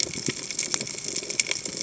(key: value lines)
label: biophony
recorder: HydroMoth